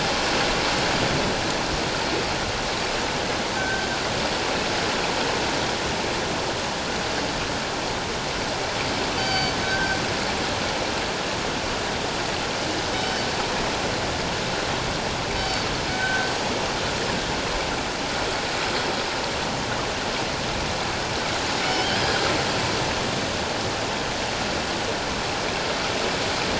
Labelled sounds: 3.6	3.9	killer whale, northern resident, G clan, 1.5 to 1.6 kHz
9.2	10.0	killer whale, northern resident, G clan, 1.4 to 6.2 kHz
12.9	13.2	killer whale, northern resident, G clan, 3.0 to 3.1 kHz
15.3	16.3	killer whale, northern resident, G clan, 1.5 to 4.7 kHz
21.6	22.0	killer whale, northern resident, G clan, 2.9 to 3.4 kHz

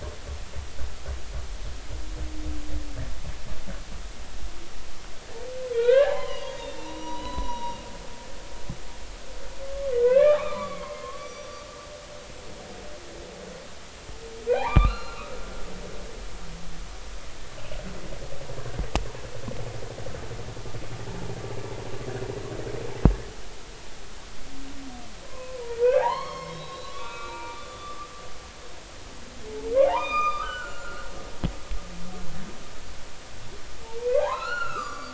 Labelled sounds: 5.7	7.8	humpback whale, 0.80 to 6.0 kHz
10.0	11.6	humpback whale, 0.86 to 5.9 kHz
14.5	15.4	humpback whale, 0.80 to 4.2 kHz
25.3	28.0	humpback whale, 0.80 to 5.7 kHz
29.8	31.1	humpback whale, 0.80 to 7.1 kHz
34.0	35.1	humpback whale, 0.80 to 7.3 kHz

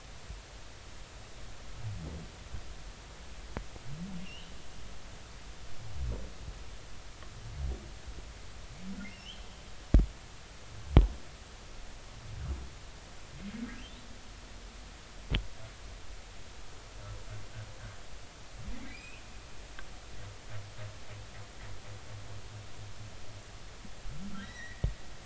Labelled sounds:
4.2	4.5	humpback whale, 2.7 to 3.2 kHz
9.1	9.5	humpback whale, 2.5 to 3.4 kHz
18.8	19.2	humpback whale, 1.8 to 3.1 kHz
24.4	24.9	humpback whale, 1.8 to 4.1 kHz

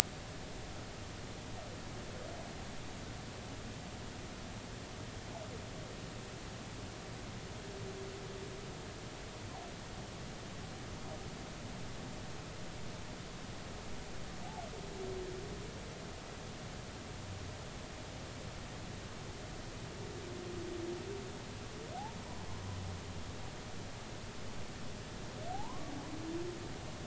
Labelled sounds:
25.5	25.9	humpback whale, 0.80 to 1.2 kHz

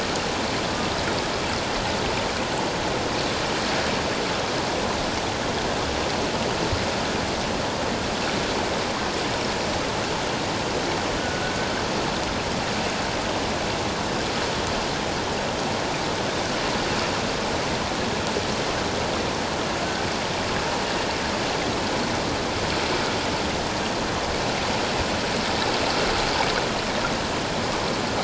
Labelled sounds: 11.2	11.6	killer whale, Bigg's (transient), 1.4 to 1.5 kHz

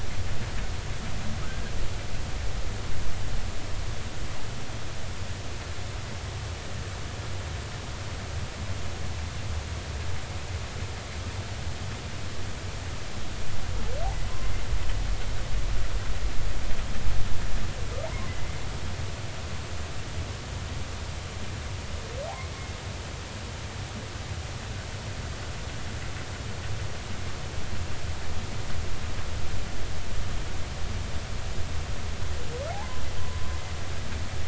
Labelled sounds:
18.0	18.6	humpback whale, 0.80 to 2.1 kHz
32.7	33.0	humpback whale, 0.80 to 1.1 kHz

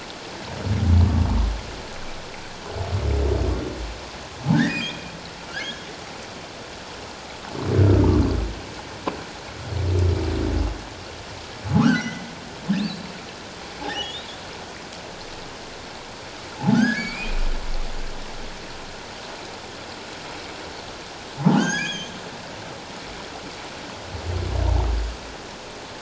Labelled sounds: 4.5	5.1	humpback whale, 1.4 to 5.0 kHz
5.5	5.9	humpback whale, 1.3 to 3.4 kHz
7.8	8.2	humpback whale, 1.1 to 1.6 kHz
11.8	12.2	humpback whale, 1.0 to 2.2 kHz
13.8	14.3	humpback whale, 0.78 to 3.9 kHz
16.7	17.4	humpback whale, 1.3 to 6.9 kHz
21.5	22.1	humpback whale, 1.4 to 6.9 kHz

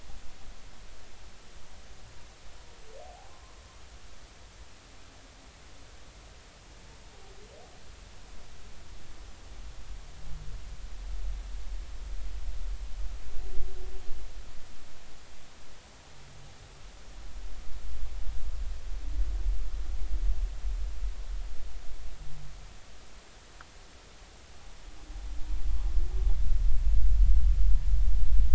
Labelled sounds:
3.0	3.5	humpback whale, 0.80 to 1.2 kHz

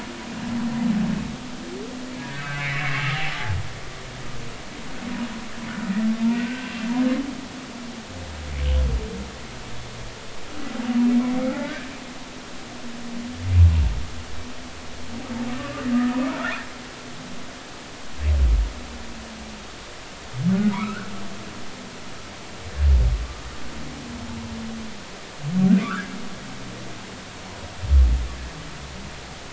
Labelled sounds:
2.3	3.2	humpback whale, 1.1 to 2.8 kHz
5.8	6.7	humpback whale, 1.4 to 2.0 kHz
11.5	11.9	humpback whale, 0.80 to 1.9 kHz
15.5	16.6	humpback whale, 1.1 to 1.9 kHz
20.7	21.1	humpback whale, 0.90 to 1.7 kHz
25.8	26.2	humpback whale, 1.1 to 1.8 kHz

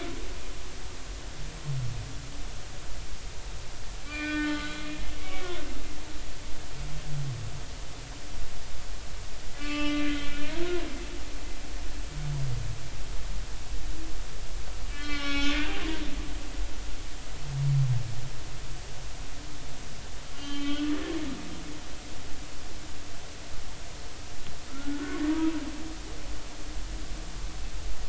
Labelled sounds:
4.0	4.7	humpback whale, 1.2 to 3.4 kHz
5.2	5.5	humpback whale, 2.2 to 2.3 kHz
9.5	10.3	humpback whale, 1.1 to 4.4 kHz
14.9	15.6	humpback whale, 1.1 to 5.4 kHz
20.3	20.9	humpback whale, 1.1 to 4.1 kHz
24.7	25.2	humpback whale, 1.2 to 1.5 kHz

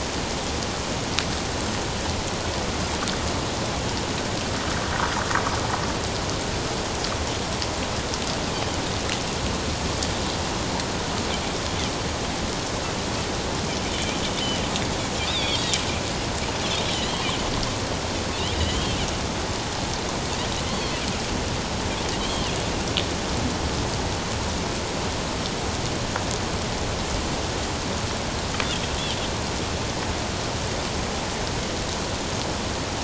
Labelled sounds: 13.9	14.2	Pacific white-sided dolphin, 2.2 to 2.5 kHz
15.3	15.8	Pacific white-sided dolphin, 3.1 to 4.8 kHz
16.8	17.4	Pacific white-sided dolphin, 2.8 to 4.2 kHz
18.5	19.0	Pacific white-sided dolphin, 2.8 to 3.3 kHz
20.7	20.9	Pacific white-sided dolphin, 3.1 to 4.6 kHz
22.2	22.5	Pacific white-sided dolphin, 3.0 to 3.3 kHz

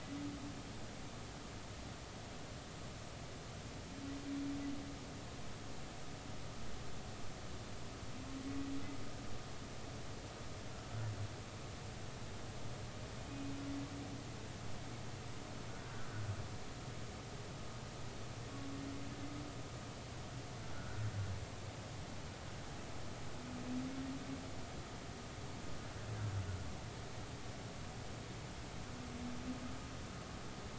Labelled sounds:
13.3	13.5	humpback whale, 2.4 to 2.6 kHz
20.8	21.0	humpback whale, 1.3 to 1.5 kHz

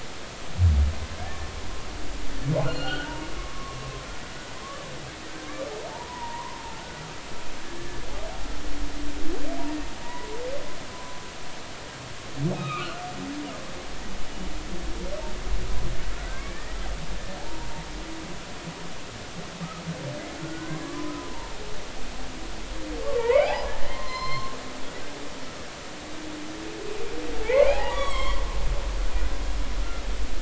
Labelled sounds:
1.2	1.5	humpback whale, 1.6 to 1.9 kHz
2.6	3.8	humpback whale, 0.86 to 4.5 kHz
5.9	6.8	humpback whale, 0.83 to 1.1 kHz
10.0	10.3	humpback whale, 0.90 to 2.0 kHz
10.9	11.2	humpback whale, 0.96 to 1.1 kHz
12.5	13.0	humpback whale, 1.1 to 3.9 kHz
16.3	17.7	humpback whale, 0.80 to 2.4 kHz
20.4	21.6	humpback whale, 0.86 to 1.6 kHz
23.0	24.5	humpback whale, 0.80 to 5.4 kHz
27.4	28.4	humpback whale, 0.80 to 6.9 kHz

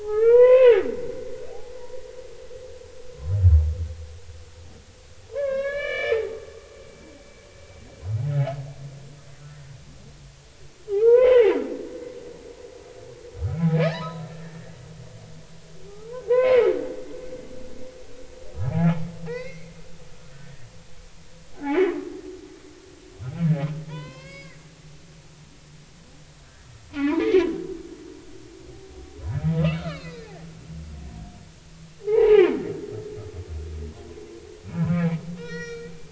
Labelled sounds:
0.0	0.8	humpback whale, 0.80 to 3.4 kHz
5.3	6.4	humpback whale, 0.80 to 4.2 kHz
10.9	11.5	humpback whale, 0.80 to 3.1 kHz
13.4	15.2	humpback whale, 0.80 to 4.2 kHz
16.3	16.8	humpback whale, 0.90 to 2.8 kHz
18.8	19.7	humpback whale, 0.80 to 6.1 kHz
20.3	20.7	humpback whale, 1.6 to 1.9 kHz
21.5	21.9	humpback whale, 0.80 to 2.4 kHz
23.9	24.6	humpback whale, 0.90 to 5.1 kHz
24.9	25.5	humpback whale, 2.2 to 2.8 kHz
26.9	27.5	humpback whale, 0.80 to 2.7 kHz
29.6	30.3	humpback whale, 1.1 to 4.6 kHz
32.0	32.5	humpback whale, 0.80 to 3.0 kHz
35.4	36.1	humpback whale, 1.3 to 5.8 kHz

